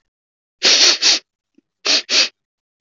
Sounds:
Sniff